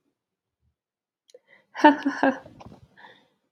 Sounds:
Laughter